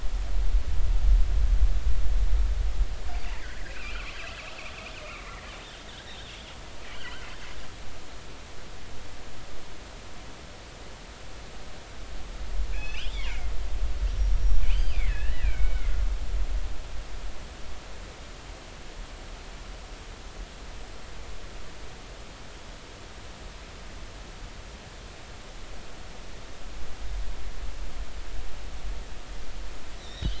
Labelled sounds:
3.3	4.1	killer whale, northern resident, G clan, 1.1 to 3.3 kHz
5.2	5.6	killer whale, northern resident, G clan, 1.7 to 2.3 kHz
6.0	6.3	killer whale, northern resident, G clan, 3.0 to 4.0 kHz
6.9	7.3	killer whale, northern resident, G clan, 2.8 to 3.3 kHz
12.7	13.3	killer whale, northern resident, G clan, GI subclan, call N24i, 2.2 to 3.7 kHz
14.2	15.9	killer whale, northern resident, G clan, GI subclan, call N23i, 1.4 to 5.7 kHz
30.0	30.3	killer whale, northern resident, G clan, 3.3 to 4.0 kHz

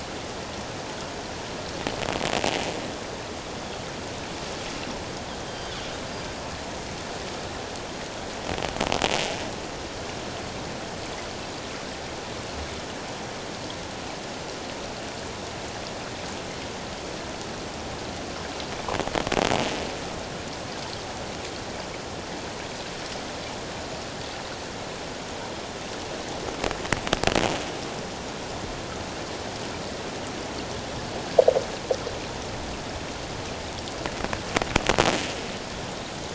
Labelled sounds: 5.5	5.8	Pacific white-sided dolphin, 3.0 to 4.8 kHz

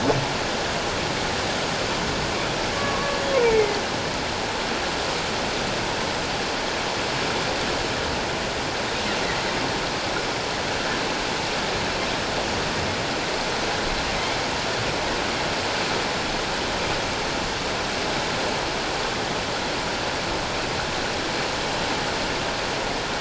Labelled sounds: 2.7	3.8	humpback whale, 0.88 to 2.4 kHz

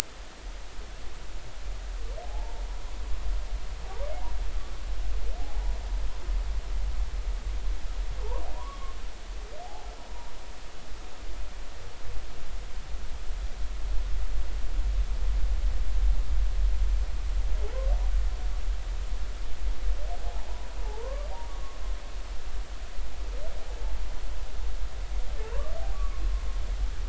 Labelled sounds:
2.2	2.6	humpback whale, 0.80 to 0.99 kHz
3.8	4.1	humpback whale, 0.80 to 1.2 kHz
5.4	5.8	humpback whale, 0.80 to 0.99 kHz
8.2	9.0	humpback whale, 0.83 to 1.2 kHz
9.6	9.9	humpback whale, 0.80 to 0.93 kHz
20.2	21.8	humpback whale, 0.80 to 1.2 kHz
25.9	26.2	humpback whale, 1.0 to 1.2 kHz

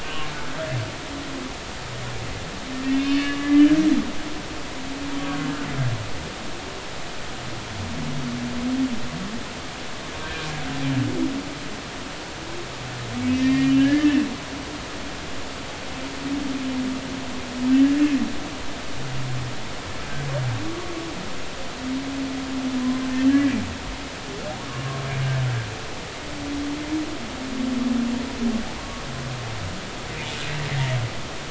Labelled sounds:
0.0	0.3	humpback whale, 2.6 to 3.0 kHz
2.7	3.7	humpback whale, 1.1 to 2.8 kHz
5.2	5.5	humpback whale, 1.0 to 1.2 kHz
10.2	10.5	humpback whale, 1.5 to 1.7 kHz
13.4	14.2	humpback whale, 1.6 to 3.1 kHz
23.3	23.5	humpback whale, 1.6 to 1.8 kHz
28.8	29.0	humpback whale, 0.93 to 1.2 kHz

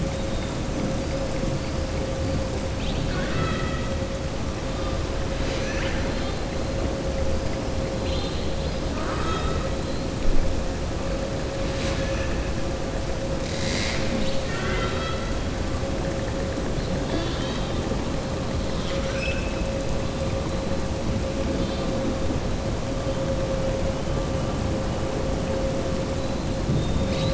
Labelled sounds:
2.7	3.9	killer whale, southern resident, 1.1 to 4.6 kHz
5.3	6.4	killer whale, southern resident, 1.4 to 6.8 kHz
7.9	8.5	killer whale, southern resident, 2.7 to 4.8 kHz
18.7	19.6	killer whale, southern resident, 1.3 to 7.8 kHz

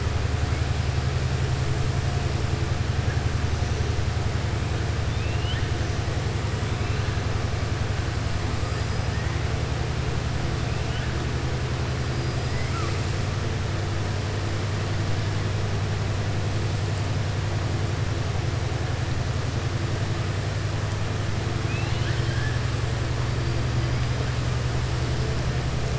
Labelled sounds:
5.0	5.7	killer whale, southern resident, 1.5 to 3.7 kHz
12.1	13.0	killer whale, southern resident, 1.1 to 5.1 kHz
21.6	22.6	killer whale, southern resident, 1.5 to 4.4 kHz

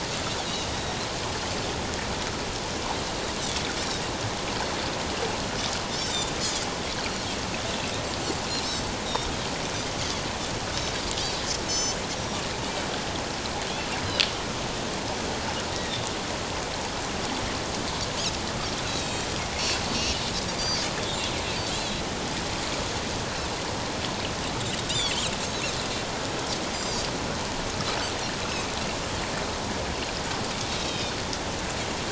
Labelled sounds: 6.0	6.3	Pacific white-sided dolphin, 3.5 to 6.3 kHz
11.7	12.0	Pacific white-sided dolphin, 3.0 to 6.9 kHz
18.9	20.2	Pacific white-sided dolphin, 2.5 to 7.7 kHz
21.7	22.0	Pacific white-sided dolphin, 3.1 to 3.5 kHz
24.9	25.1	Pacific white-sided dolphin, 3.2 to 4.1 kHz
26.7	27.0	Pacific white-sided dolphin, 4.4 to 5.0 kHz
30.7	31.1	Pacific white-sided dolphin, 2.3 to 3.9 kHz

